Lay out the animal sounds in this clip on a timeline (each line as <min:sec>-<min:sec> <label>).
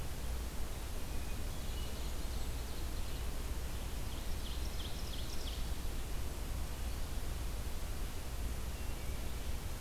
0:00.9-0:02.0 Wood Thrush (Hylocichla mustelina)
0:01.0-0:02.7 Golden-crowned Kinglet (Regulus satrapa)
0:01.7-0:03.3 Ovenbird (Seiurus aurocapilla)
0:03.9-0:05.6 Ovenbird (Seiurus aurocapilla)
0:08.6-0:09.5 Wood Thrush (Hylocichla mustelina)